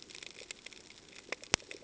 {"label": "ambient", "recorder": "HydroMoth"}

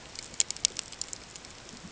{"label": "ambient", "recorder": "HydroMoth"}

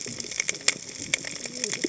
{"label": "biophony, cascading saw", "recorder": "HydroMoth"}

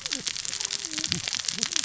{"label": "biophony, cascading saw", "recorder": "SoundTrap 600 or HydroMoth"}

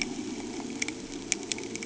{"label": "anthrophony, boat engine", "recorder": "HydroMoth"}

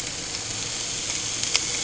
{"label": "anthrophony, boat engine", "recorder": "HydroMoth"}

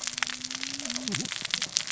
{"label": "biophony, cascading saw", "recorder": "SoundTrap 600 or HydroMoth"}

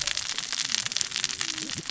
{"label": "biophony, cascading saw", "recorder": "SoundTrap 600 or HydroMoth"}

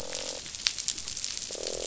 {"label": "biophony, croak", "recorder": "SoundTrap 500"}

